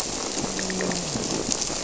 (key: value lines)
label: biophony, grouper
recorder: SoundTrap 300